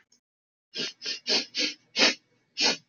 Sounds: Sniff